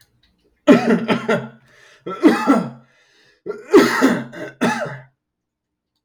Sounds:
Cough